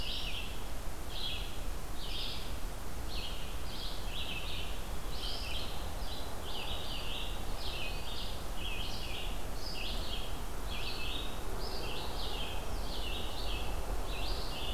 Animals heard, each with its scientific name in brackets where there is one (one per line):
Red-eyed Vireo (Vireo olivaceus)